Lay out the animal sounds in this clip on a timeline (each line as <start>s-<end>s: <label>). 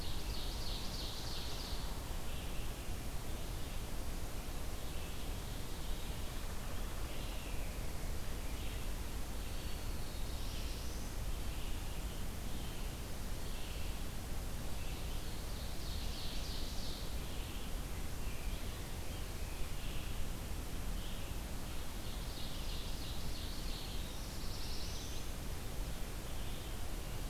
0.0s-2.0s: Ovenbird (Seiurus aurocapilla)
0.0s-27.3s: Red-eyed Vireo (Vireo olivaceus)
9.8s-11.3s: Black-throated Blue Warbler (Setophaga caerulescens)
15.3s-17.2s: Ovenbird (Seiurus aurocapilla)
21.9s-24.2s: Ovenbird (Seiurus aurocapilla)
23.2s-24.5s: Black-throated Green Warbler (Setophaga virens)
24.0s-25.6s: Black-throated Blue Warbler (Setophaga caerulescens)